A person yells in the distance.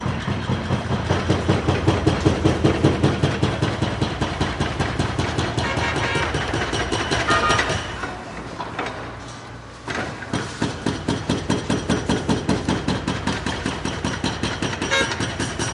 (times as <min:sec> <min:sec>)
0:07.9 0:08.5